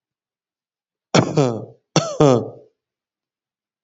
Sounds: Cough